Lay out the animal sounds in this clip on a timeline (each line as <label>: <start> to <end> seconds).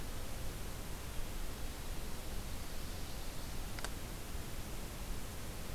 Ovenbird (Seiurus aurocapilla): 2.1 to 3.6 seconds